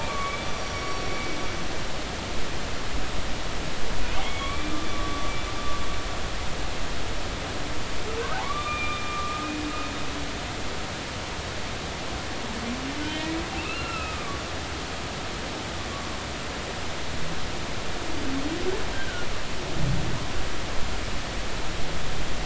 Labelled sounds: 0.0	1.4	humpback whale, 1.1 to 5.9 kHz
4.2	5.3	humpback whale, 1.1 to 3.5 kHz
8.3	9.5	humpback whale, 0.80 to 2.5 kHz
13.0	13.2	humpback whale, 3.0 to 3.2 kHz
13.6	14.4	humpback whale, 1.1 to 2.9 kHz
18.9	19.3	humpback whale, 1.4 to 1.7 kHz

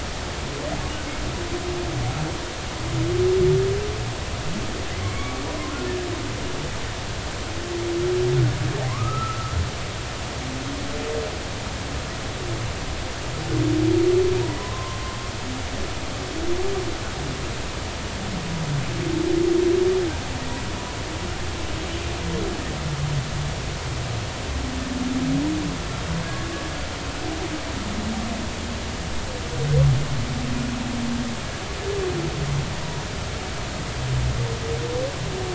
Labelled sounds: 4.9	5.4	humpback whale, 0.99 to 2.3 kHz
8.9	9.6	humpback whale, 0.93 to 1.4 kHz
14.6	15.2	humpback whale, 0.96 to 1.1 kHz
26.2	26.5	humpback whale, 1.6 to 1.8 kHz

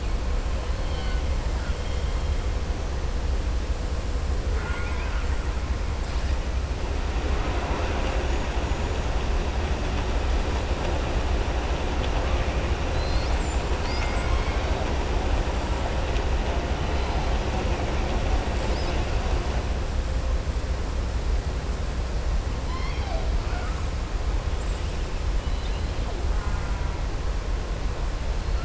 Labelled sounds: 1.5	2.0	killer whale, southern resident, 1.4 to 3.3 kHz
4.5	5.3	killer whale, southern resident, 0.51 to 3.2 kHz

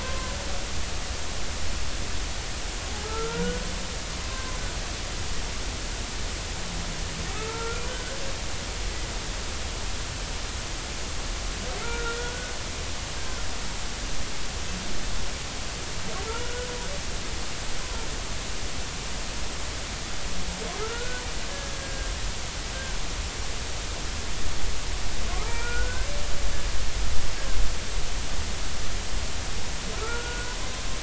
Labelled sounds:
0.0	0.4	humpback whale, 0.96 to 1.1 kHz
2.9	3.6	humpback whale, 0.80 to 1.5 kHz
4.2	4.6	humpback whale, 0.99 to 1.2 kHz
7.3	8.2	humpback whale, 0.86 to 1.7 kHz
11.8	12.5	humpback whale, 1.3 to 1.5 kHz
16.2	16.7	humpback whale, 1.3 to 1.5 kHz
20.8	21.2	humpback whale, 1.2 to 1.6 kHz
21.5	22.1	humpback whale, 1.6 to 1.7 kHz
22.7	23.0	humpback whale, 1.4 to 1.7 kHz
25.5	26.1	humpback whale, 0.86 to 2.4 kHz
30.0	30.6	humpback whale, 1.3 to 1.5 kHz

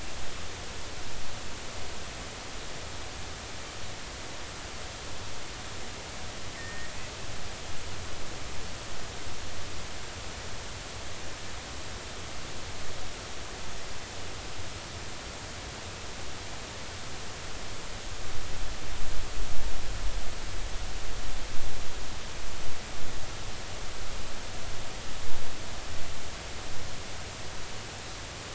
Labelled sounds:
6.6	6.9	killer whale, northern resident, 1.8 to 1.9 kHz

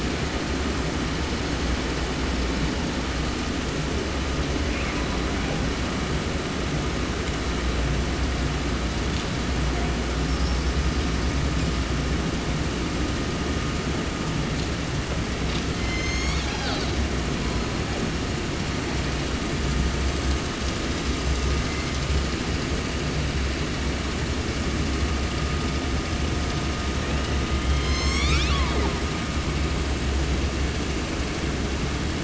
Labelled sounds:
4.7	5.7	killer whale, 0.48 to 3.5 kHz
10.2	11.9	killer whale, 4.0 to 8.0 kHz
15.7	17.1	killer whale, southern resident, J pod, call S01, 0.30 to 8.0 kHz
21.5	22.2	killer whale, 1.7 to 2.6 kHz
27.0	29.0	killer whale, 0.55 to 8.0 kHz

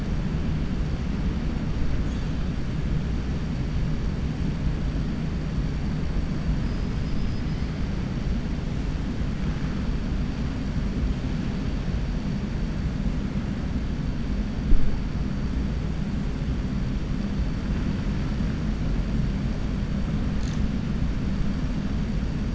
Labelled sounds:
6.9	7.6	killer whale, 4.3 to 5.1 kHz

